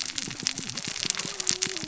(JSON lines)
{"label": "biophony, cascading saw", "recorder": "SoundTrap 600 or HydroMoth"}